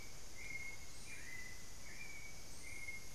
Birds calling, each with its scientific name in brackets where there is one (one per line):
Hauxwell's Thrush (Turdus hauxwelli)
unidentified bird